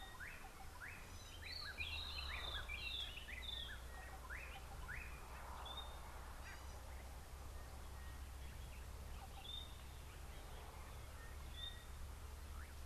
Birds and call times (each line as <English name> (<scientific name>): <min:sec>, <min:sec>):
White-browed Robin-Chat (Cossypha heuglini): 0:02.2, 0:09.5